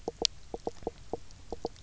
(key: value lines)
label: biophony, knock croak
recorder: SoundTrap 300